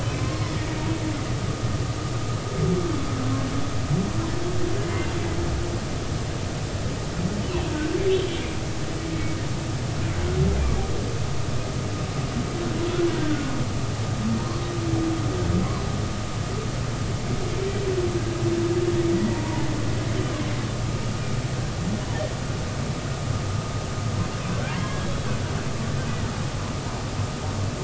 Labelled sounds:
0.2	0.6	humpback whale, 0.96 to 1.1 kHz
7.7	8.6	humpback whale, 1.4 to 3.5 kHz
13.2	13.5	humpback whale, 1.4 to 1.6 kHz
19.1	20.7	humpback whale, 0.83 to 2.0 kHz
24.6	25.1	humpback whale, 1.3 to 1.7 kHz

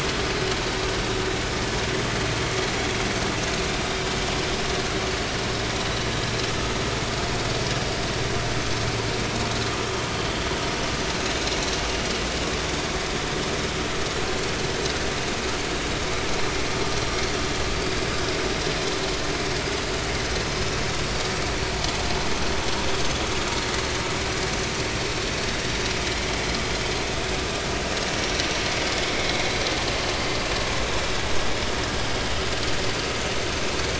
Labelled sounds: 29.1	29.5	vessel noise, 2.1 to 2.3 kHz

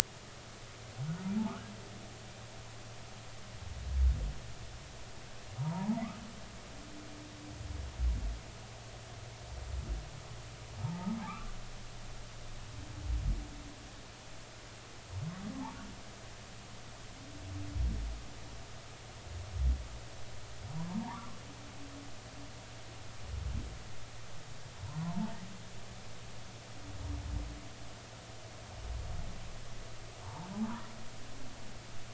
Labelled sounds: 1.5	1.7	humpback whale, 1.1 to 1.7 kHz
5.6	6.0	humpback whale, 0.80 to 1.1 kHz
10.8	11.6	humpback whale, 0.83 to 1.6 kHz
20.9	21.4	humpback whale, 0.80 to 1.4 kHz
25.0	25.3	humpback whale, 0.83 to 1.1 kHz
30.2	30.5	humpback whale, 0.83 to 1.2 kHz

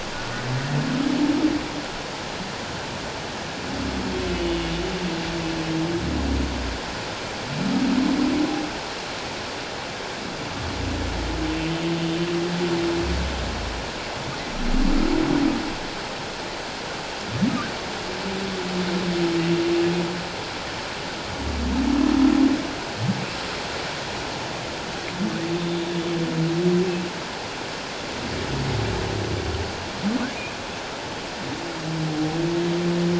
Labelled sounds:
4.3	4.8	humpback whale, 2.8 to 3.0 kHz
30.3	30.5	humpback whale, 2.2 to 2.6 kHz

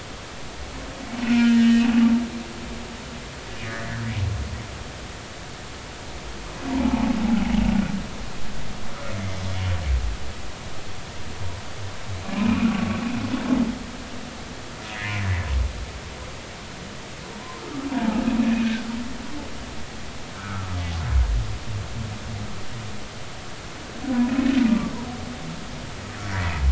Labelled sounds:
1.2	1.9	humpback whale, 1.3 to 3.1 kHz
3.8	4.1	humpback whale, 1.5 to 2.0 kHz
6.7	7.1	humpback whale, 0.80 to 1.0 kHz
12.3	13.0	humpback whale, 1.1 to 2.6 kHz
17.9	18.2	humpback whale, 0.80 to 0.99 kHz
20.3	20.6	humpback whale, 1.2 to 1.6 kHz
24.7	24.9	humpback whale, 1.1 to 1.2 kHz

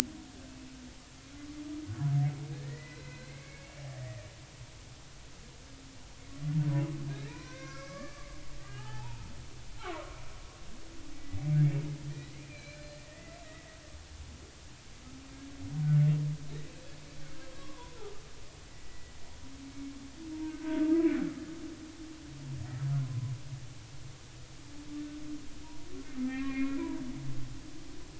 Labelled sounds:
2.5	4.2	humpback whale, 1.5 to 4.2 kHz
7.1	8.3	humpback whale, 0.90 to 6.1 kHz
8.6	9.3	humpback whale, 0.80 to 1.8 kHz
9.7	10.2	humpback whale, 0.90 to 1.4 kHz
11.2	11.5	humpback whale, 1.9 to 2.1 kHz
12.5	13.4	humpback whale, 1.7 to 4.2 kHz
15.8	16.1	humpback whale, 1.4 to 1.5 kHz
17.5	18.0	humpback whale, 0.90 to 1.2 kHz
18.7	19.1	humpback whale, 1.9 to 2.0 kHz
20.4	20.9	humpback whale, 1.4 to 1.6 kHz
23.0	23.3	humpback whale, 0.96 to 1.1 kHz
26.1	27.0	humpback whale, 0.90 to 2.5 kHz

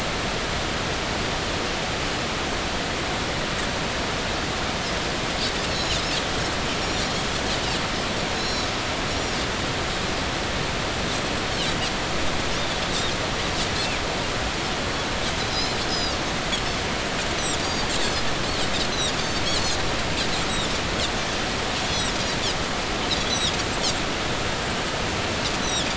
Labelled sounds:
5.7	6.0	Pacific white-sided dolphin, 3.9 to 4.1 kHz
6.8	7.1	Pacific white-sided dolphin, 5.4 to 7.2 kHz
8.3	8.7	Pacific white-sided dolphin, 3.8 to 5.6 kHz
12.9	13.1	Pacific white-sided dolphin, 3.5 to 3.9 kHz
15.5	16.2	Pacific white-sided dolphin, 3.7 to 5.3 kHz
17.6	18.2	Pacific white-sided dolphin, 4.1 to 4.8 kHz
19.2	19.8	Pacific white-sided dolphin, 3.9 to 6.8 kHz
21.9	22.4	Pacific white-sided dolphin, 4.5 to 6.1 kHz
23.3	23.6	Pacific white-sided dolphin, 3.2 to 6.1 kHz
25.6	25.9	Pacific white-sided dolphin, 3.3 to 6.1 kHz

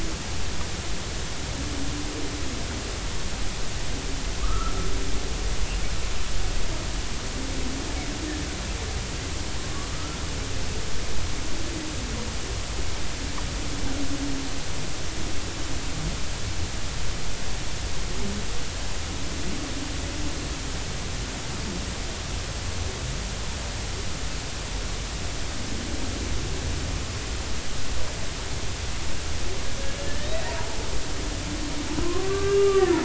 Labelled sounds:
4.4	4.7	humpback whale, 0.99 to 1.4 kHz
9.9	10.2	humpback whale, 1.2 to 1.4 kHz
30.1	30.3	humpback whale, 1.7 to 1.9 kHz
32.0	33.0	humpback whale, 0.96 to 2.0 kHz

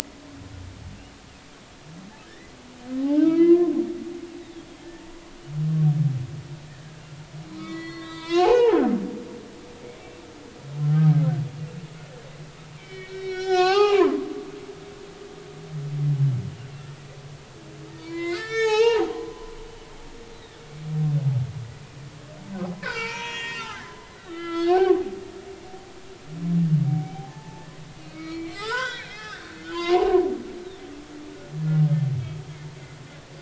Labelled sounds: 2.2	2.5	humpback whale, 1.6 to 2.1 kHz
3.1	3.7	humpback whale, 1.6 to 3.3 kHz
4.0	4.7	humpback whale, 0.80 to 4.0 kHz
7.5	9.4	humpback whale, 0.80 to 5.7 kHz
12.8	14.3	humpback whale, 0.80 to 6.9 kHz
18.0	19.5	humpback whale, 0.80 to 7.7 kHz
20.3	20.7	humpback whale, 3.6 to 4.1 kHz
22.8	25.0	humpback whale, 0.80 to 8.0 kHz
26.9	30.2	humpback whale, 0.80 to 6.0 kHz

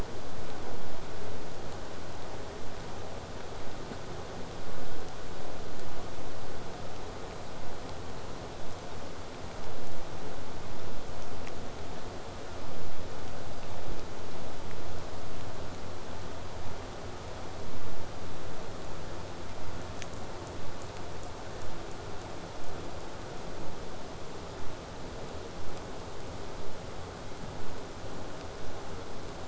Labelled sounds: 9.6	14.6	vessel noise, 0 to 8.0 kHz

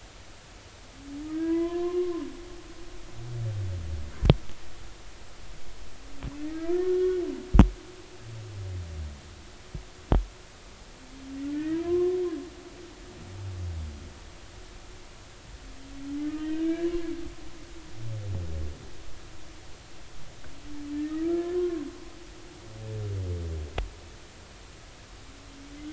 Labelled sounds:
1.4	2.2	humpback whale, 0.96 to 2.1 kHz
6.5	7.2	humpback whale, 1.2 to 1.9 kHz
11.5	12.2	humpback whale, 0.99 to 2.1 kHz
16.2	17.1	humpback whale, 0.96 to 1.9 kHz
20.9	21.9	humpback whale, 0.99 to 2.0 kHz

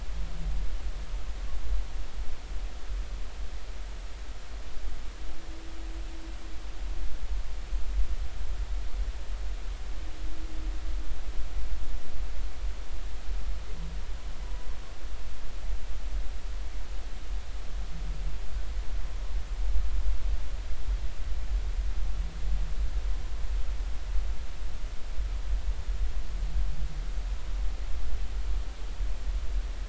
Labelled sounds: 14.4	14.7	humpback whale, 0.93 to 1.0 kHz

